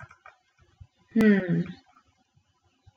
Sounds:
Sigh